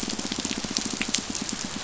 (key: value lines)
label: biophony, pulse
recorder: SoundTrap 500